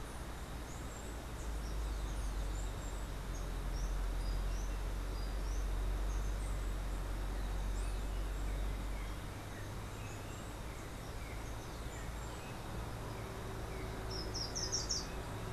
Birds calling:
Steely-vented Hummingbird (Saucerottia saucerottei), Slate-throated Redstart (Myioborus miniatus)

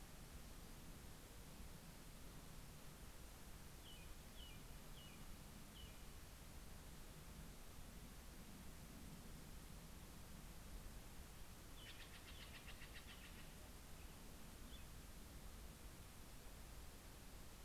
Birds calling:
American Robin (Turdus migratorius), Steller's Jay (Cyanocitta stelleri)

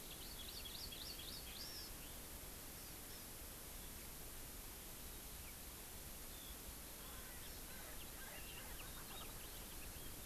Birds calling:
Erckel's Francolin (Pternistis erckelii), House Finch (Haemorhous mexicanus), Hawaii Amakihi (Chlorodrepanis virens)

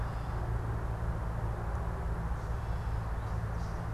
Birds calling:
Gray Catbird (Dumetella carolinensis), American Goldfinch (Spinus tristis)

